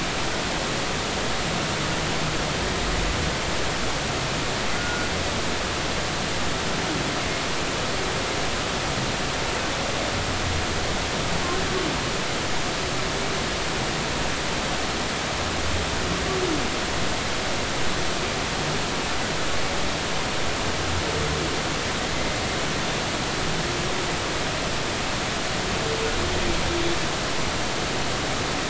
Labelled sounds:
4.7	5.1	humpback whale, 1.4 to 1.5 kHz

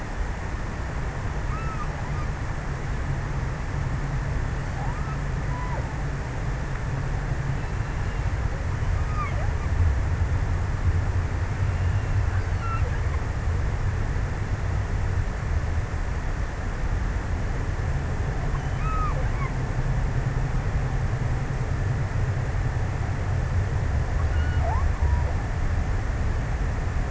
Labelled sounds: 0.8	2.4	killer whale, offshore, 0.55 to 3.1 kHz
4.3	6.4	killer whale, offshore, 0.39 to 1.8 kHz
8.5	9.8	killer whale, offshore, 0.69 to 3.2 kHz
11.8	13.7	killer whale, offshore, 0.95 to 3.4 kHz
18.6	20.0	killer whale, offshore, 0.53 to 2.8 kHz
23.9	25.4	killer whale, offshore, 0.35 to 3.6 kHz

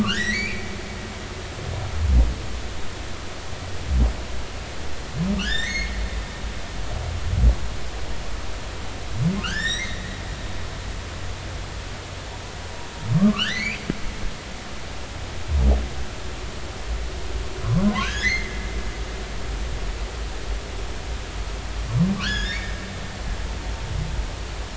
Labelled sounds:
0.0	0.7	humpback whale, 1.1 to 4.7 kHz
5.4	5.9	humpback whale, 1.4 to 6.6 kHz
9.4	11.0	humpback whale, 1.2 to 7.8 kHz
13.2	13.8	humpback whale, 1.0 to 4.8 kHz
17.9	18.6	humpback whale, 0.96 to 2.3 kHz
22.2	22.8	humpback whale, 1.3 to 7.0 kHz

